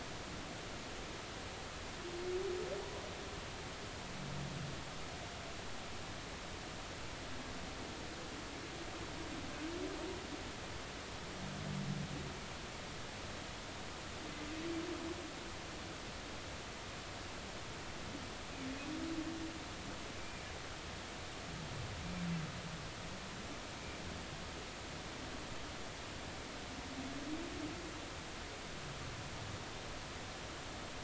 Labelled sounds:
20.2	20.4	humpback whale, 2.2 to 2.5 kHz

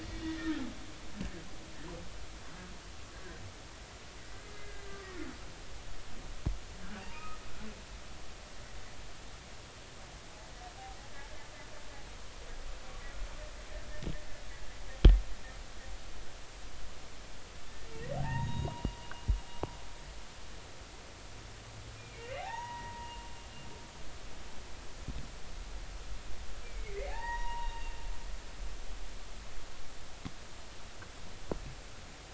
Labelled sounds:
0.0	0.7	humpback whale, 1.7 to 2.0 kHz
4.6	5.3	humpback whale, 1.1 to 2.1 kHz
7.0	7.4	humpback whale, 0.86 to 2.6 kHz
18.2	19.0	humpback whale, 0.80 to 3.8 kHz
22.0	23.2	humpback whale, 0.80 to 3.0 kHz
26.6	28.0	humpback whale, 0.80 to 2.9 kHz

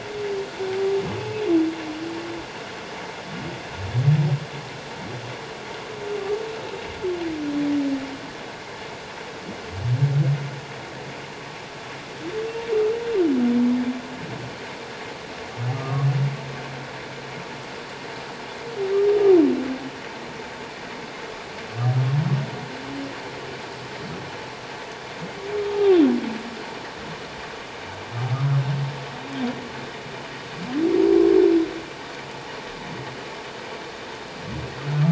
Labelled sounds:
15.7	16.1	humpback whale, 1.0 to 1.3 kHz
25.6	26.0	humpback whale, 1.1 to 1.2 kHz

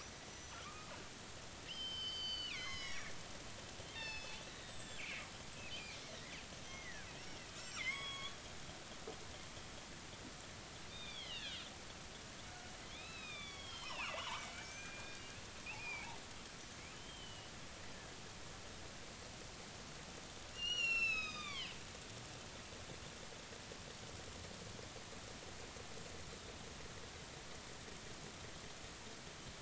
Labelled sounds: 0.0	0.9	killer whale, northern resident, G clan, 1.1 to 6.0 kHz
1.7	3.1	killer whale, northern resident, G clan, 0.93 to 6.9 kHz
3.9	5.3	killer whale, northern resident, G clan, 0.83 to 8.0 kHz
6.0	8.4	killer whale, northern resident, G clan, 0.99 to 6.1 kHz
10.9	11.7	killer whale, northern resident, G clan, 1.4 to 4.4 kHz
12.8	15.2	killer whale, northern resident, G clan, 0.80 to 4.4 kHz
15.8	16.1	killer whale, northern resident, G clan, 2.2 to 2.7 kHz
16.9	17.5	killer whale, northern resident, G clan, 2.8 to 3.3 kHz
20.5	21.7	killer whale, northern resident, G clan, 0.99 to 7.2 kHz

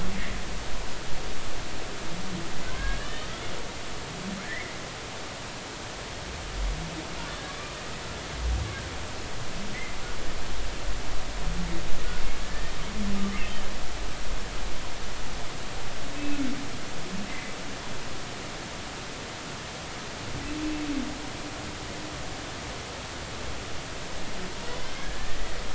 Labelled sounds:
2.6	3.5	humpback whale, 0.99 to 3.8 kHz
4.4	4.8	humpback whale, 1.6 to 2.3 kHz
7.5	7.8	humpback whale, 2.2 to 2.4 kHz
12.4	12.7	humpback whale, 1.6 to 1.9 kHz
16.1	16.4	humpback whale, 2.5 to 2.7 kHz
17.3	17.5	humpback whale, 2.0 to 2.1 kHz
25.0	25.4	humpback whale, 1.6 to 1.9 kHz

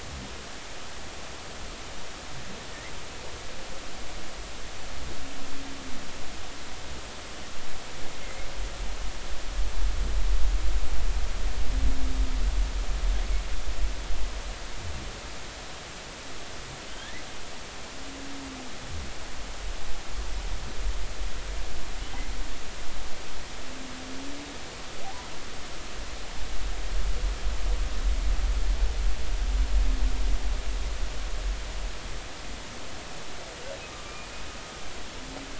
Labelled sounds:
16.9	17.2	humpback whale, 1.5 to 3.4 kHz
33.9	34.2	humpback whale, 1.1 to 1.2 kHz

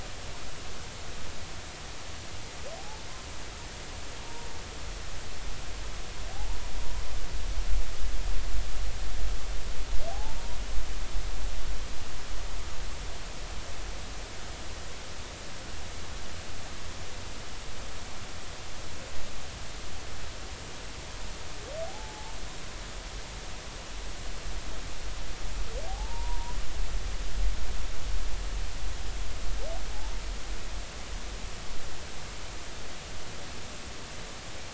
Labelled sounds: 2.8	3.0	humpback whale, 0.80 to 0.93 kHz
6.3	6.6	humpback whale, 0.80 to 1.0 kHz
10.1	10.4	humpback whale, 0.80 to 0.96 kHz
21.9	22.4	humpback whale, 0.80 to 0.93 kHz
25.9	26.6	humpback whale, 0.80 to 1.0 kHz

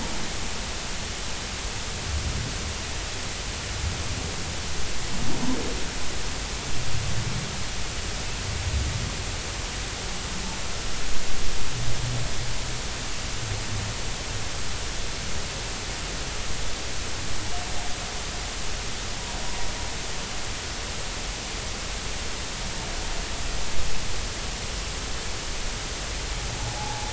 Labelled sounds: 26.6	27.1	humpback whale, 0.80 to 0.93 kHz

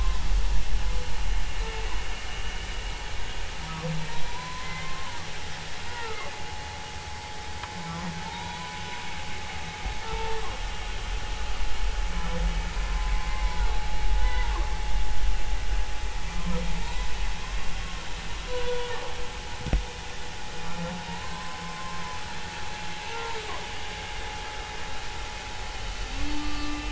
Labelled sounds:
2.3	2.6	humpback whale, 2.8 to 3.0 kHz
4.3	5.1	humpback whale, 0.90 to 2.1 kHz
5.9	6.3	humpback whale, 0.86 to 1.5 kHz
8.2	8.8	humpback whale, 0.86 to 3.9 kHz
10.0	10.4	humpback whale, 0.86 to 0.96 kHz
12.7	13.7	humpback whale, 0.90 to 1.2 kHz
14.2	14.5	humpback whale, 0.90 to 2.1 kHz
16.8	17.1	humpback whale, 0.86 to 1.1 kHz
18.5	18.9	humpback whale, 0.90 to 3.5 kHz
21.1	22.0	humpback whale, 0.86 to 4.2 kHz
26.4	26.9	humpback whale, 1.1 to 2.8 kHz

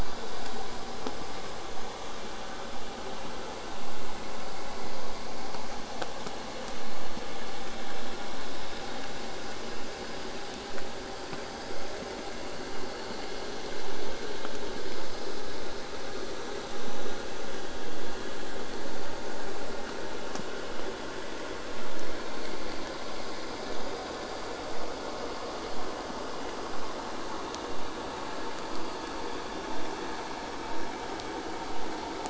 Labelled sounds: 23.7	28.7	vessel noise, 0 to 8.0 kHz

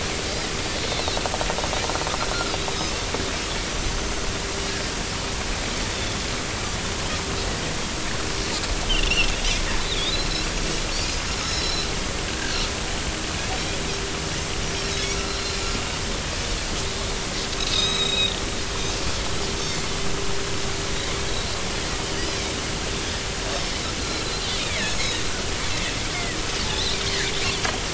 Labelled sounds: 3.6	4.2	Pacific white-sided dolphin, 5.6 to 6.2 kHz
5.9	6.2	Pacific white-sided dolphin, 3.3 to 3.6 kHz
8.9	9.3	Pacific white-sided dolphin, 2.5 to 3.2 kHz
9.9	10.5	Pacific white-sided dolphin, 3.2 to 4.2 kHz
11.4	12.6	Pacific white-sided dolphin, 1.5 to 5.7 kHz
15.3	15.6	Pacific white-sided dolphin, 4.0 to 4.3 kHz
17.7	18.4	Pacific white-sided dolphin, 2.4 to 7.7 kHz
19.6	19.9	Pacific white-sided dolphin, 4.3 to 4.6 kHz
24.0	24.3	Pacific white-sided dolphin, 3.9 to 4.3 kHz
24.6	25.3	Pacific white-sided dolphin, 1.7 to 5.4 kHz
26.1	27.0	Pacific white-sided dolphin, 1.8 to 4.2 kHz

